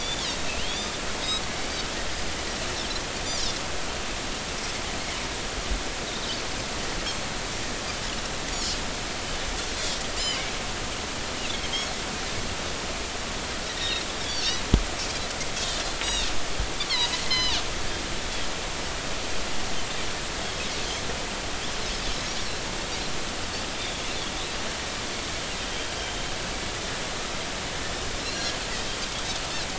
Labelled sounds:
0.0	0.9	Pacific white-sided dolphin, 2.7 to 4.4 kHz
6.1	6.3	Pacific white-sided dolphin, 3.6 to 4.0 kHz
10.2	10.5	Pacific white-sided dolphin, 2.0 to 3.1 kHz
13.8	14.6	Pacific white-sided dolphin, 1.8 to 5.8 kHz
16.0	17.6	Pacific white-sided dolphin, 0.90 to 6.2 kHz
26.0	26.2	Pacific white-sided dolphin, 3.1 to 3.2 kHz
28.2	28.5	Pacific white-sided dolphin, 3.9 to 4.4 kHz

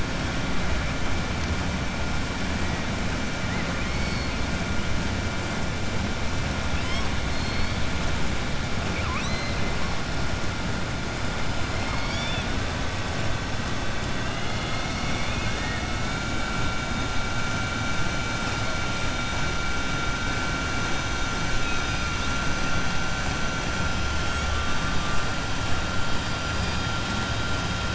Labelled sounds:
8.8	9.6	killer whale, southern resident, 1.0 to 7.9 kHz
11.7	12.5	killer whale, southern resident, 0.92 to 6.9 kHz

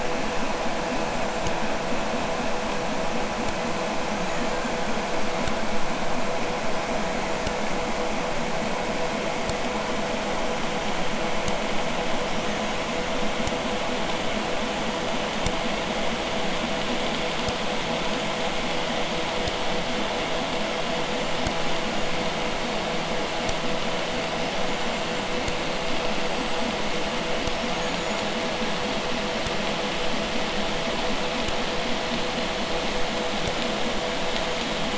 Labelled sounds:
0.8	1.6	killer whale, Bigg's (transient), 6.6 to 7.7 kHz
3.9	4.8	killer whale, Bigg's (transient), 4.7 to 7.4 kHz
6.6	7.6	killer whale, Bigg's (transient), 4.3 to 7.0 kHz
12.1	13.2	killer whale, Bigg's (transient), 4.5 to 6.8 kHz
18.1	18.7	killer whale, Bigg's (transient), 6.6 to 7.2 kHz
20.3	22.4	killer whale, Bigg's (transient), 6.2 to 7.5 kHz
24.1	25.4	killer whale, Bigg's (transient), 4.6 to 7.4 kHz
26.2	26.7	killer whale, Bigg's (transient), 7.4 to 8.0 kHz
27.3	28.3	killer whale, Bigg's (transient), 4.4 to 7.4 kHz

